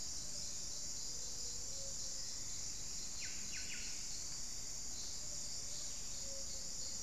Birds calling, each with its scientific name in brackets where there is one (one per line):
Ruddy Quail-Dove (Geotrygon montana)
Buff-breasted Wren (Cantorchilus leucotis)